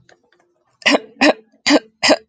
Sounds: Throat clearing